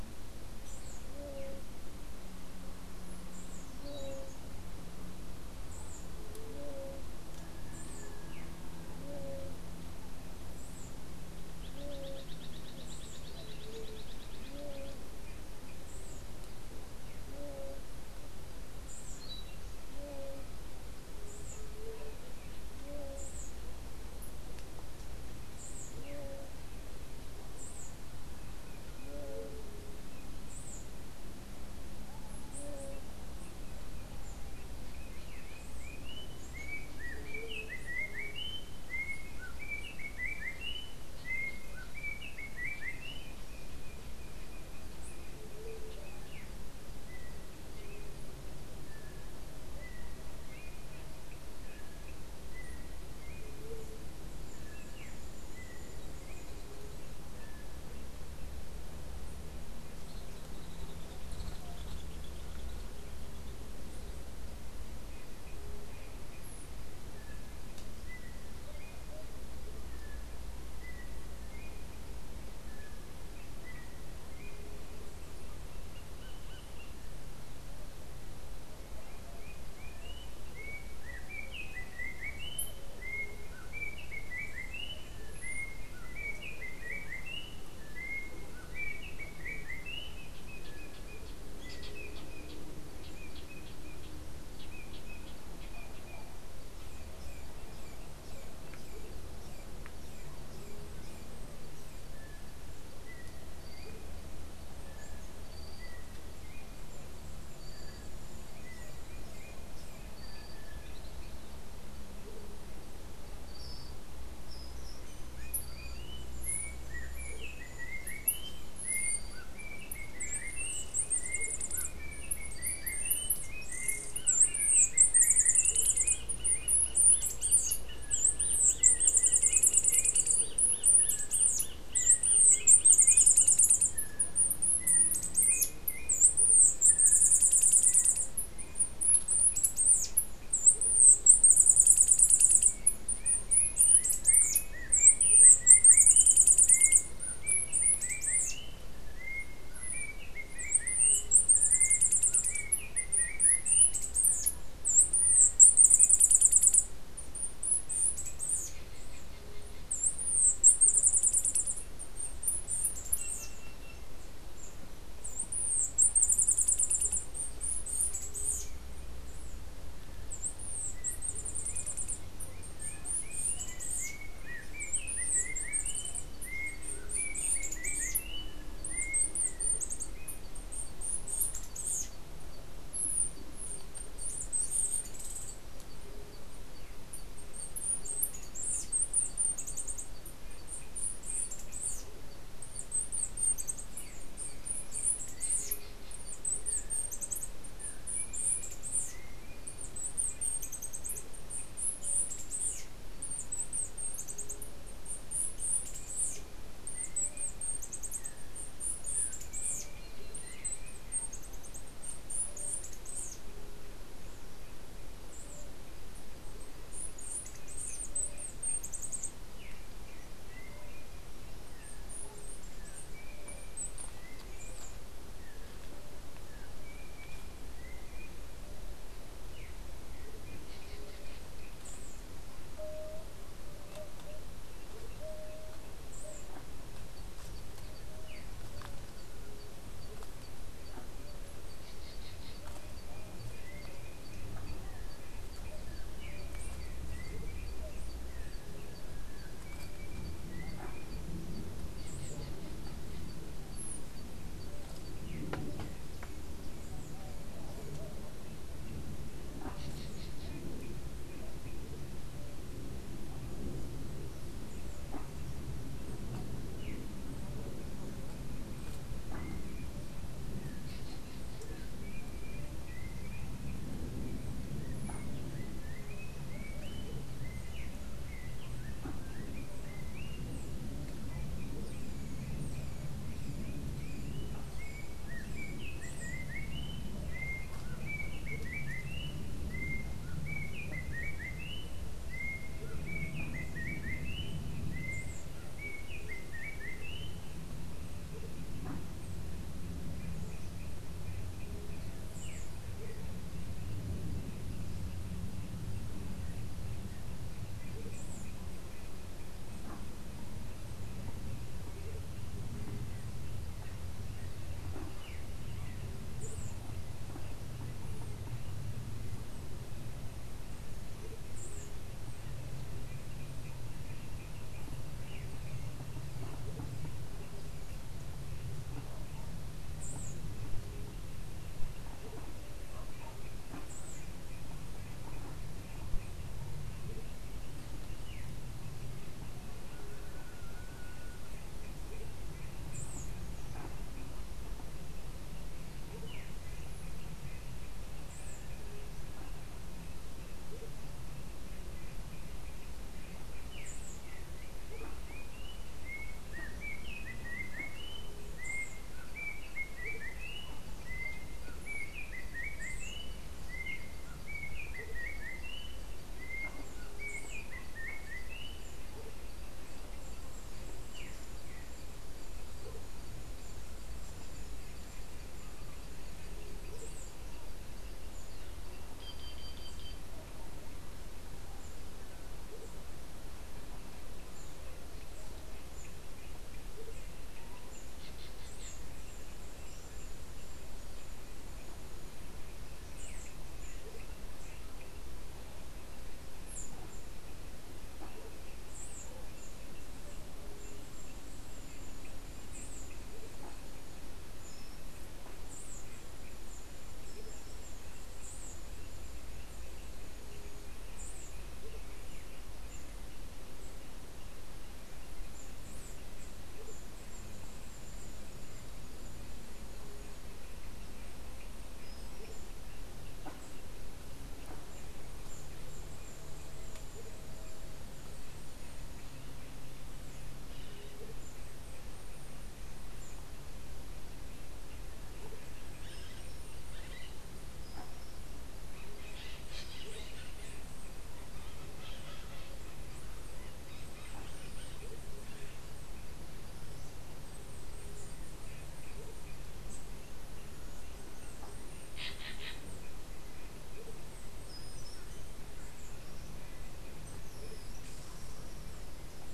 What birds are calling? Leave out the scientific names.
unidentified bird, Andean Solitaire, Yellow-backed Oriole, Green Jay, Andean Motmot